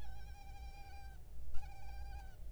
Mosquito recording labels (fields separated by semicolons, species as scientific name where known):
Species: Culex pipiens complex; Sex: male; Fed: unfed; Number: one; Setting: cup